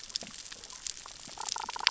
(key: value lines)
label: biophony, damselfish
recorder: SoundTrap 600 or HydroMoth